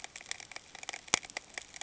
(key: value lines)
label: ambient
recorder: HydroMoth